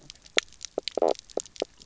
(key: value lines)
label: biophony, knock croak
recorder: SoundTrap 300